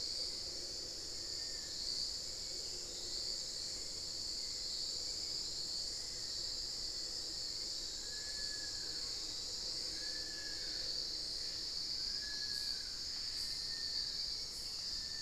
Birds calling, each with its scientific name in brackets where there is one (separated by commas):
Long-billed Woodcreeper (Nasica longirostris), Hauxwell's Thrush (Turdus hauxwelli), Black-faced Antthrush (Formicarius analis)